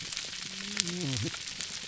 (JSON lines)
{"label": "biophony, whup", "recorder": "SoundTrap 300"}